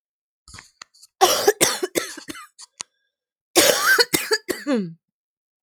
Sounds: Cough